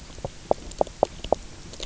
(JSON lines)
{"label": "biophony, knock croak", "recorder": "SoundTrap 300"}